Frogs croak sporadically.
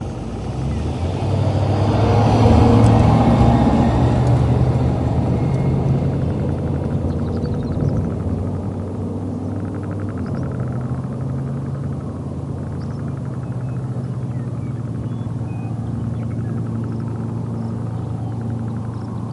5.1s 19.3s

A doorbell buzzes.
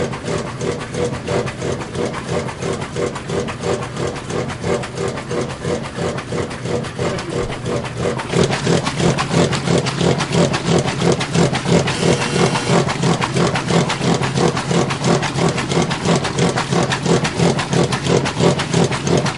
11.9s 12.9s

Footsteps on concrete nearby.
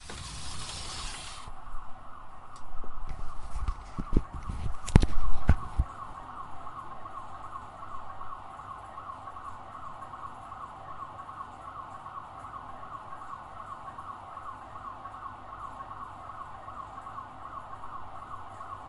4.7s 5.8s

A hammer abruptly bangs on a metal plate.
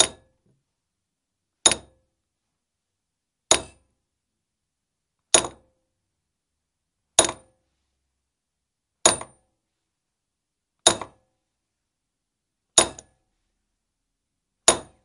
0.0s 0.3s, 1.6s 1.9s, 3.4s 3.8s, 5.3s 5.6s, 7.1s 7.4s, 9.0s 9.3s, 10.8s 11.2s, 12.7s 13.2s, 14.6s 14.9s

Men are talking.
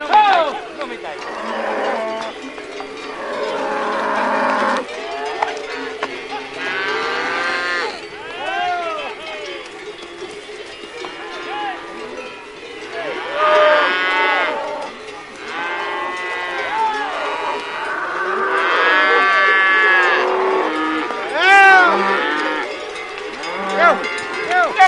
0.1s 1.5s

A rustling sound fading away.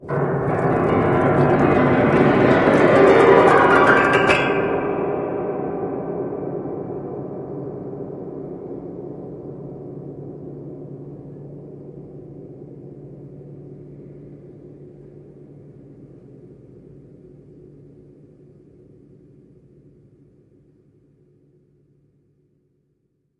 8.6s 17.2s

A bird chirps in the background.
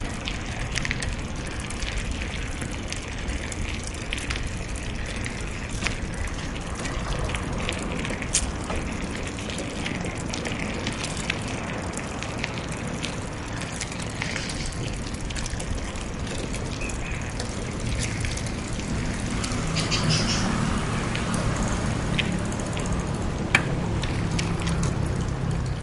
15.7s 21.3s

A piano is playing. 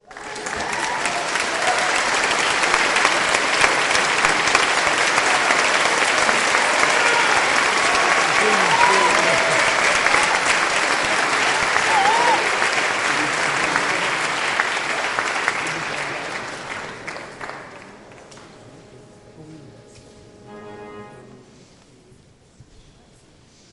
20.4s 22.1s

